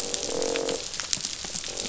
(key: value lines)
label: biophony, croak
recorder: SoundTrap 500